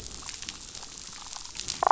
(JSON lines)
{"label": "biophony, damselfish", "recorder": "SoundTrap 500"}